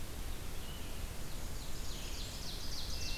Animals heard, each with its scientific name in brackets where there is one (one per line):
Ovenbird (Seiurus aurocapilla)